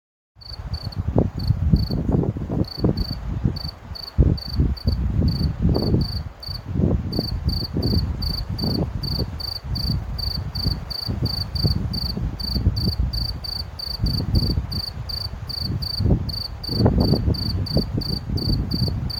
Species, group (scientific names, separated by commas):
Gryllus campestris, Orthoptera